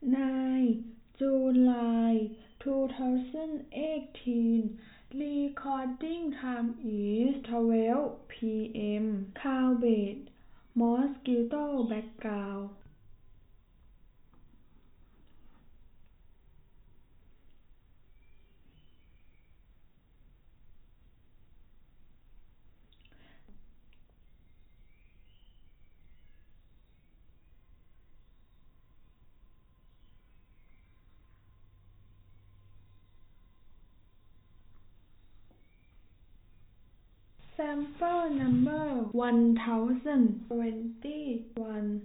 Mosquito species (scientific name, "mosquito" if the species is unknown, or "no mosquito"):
no mosquito